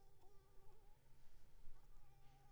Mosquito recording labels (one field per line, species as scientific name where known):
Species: Anopheles arabiensis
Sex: female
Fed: unfed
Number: one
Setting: cup